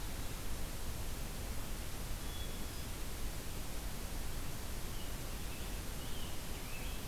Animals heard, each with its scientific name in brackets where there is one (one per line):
American Robin (Turdus migratorius)
Hermit Thrush (Catharus guttatus)